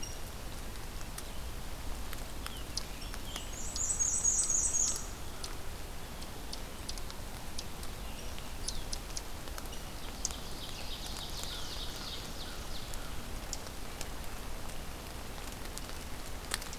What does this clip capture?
Rose-breasted Grosbeak, Black-and-white Warbler, Ovenbird, American Crow